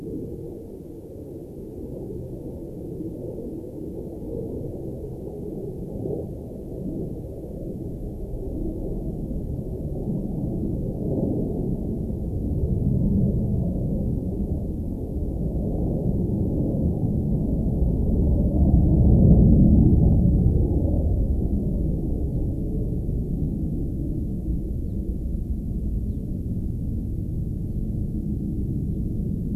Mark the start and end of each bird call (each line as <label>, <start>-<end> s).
Gray-crowned Rosy-Finch (Leucosticte tephrocotis), 22.2-22.4 s
Gray-crowned Rosy-Finch (Leucosticte tephrocotis), 24.8-25.1 s
Gray-crowned Rosy-Finch (Leucosticte tephrocotis), 26.0-26.3 s